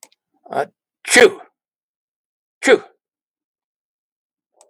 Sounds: Sneeze